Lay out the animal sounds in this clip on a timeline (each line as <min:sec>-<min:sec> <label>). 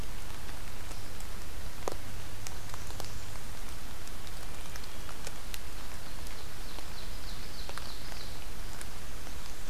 0:02.2-0:03.8 Blackburnian Warbler (Setophaga fusca)
0:05.8-0:08.5 Ovenbird (Seiurus aurocapilla)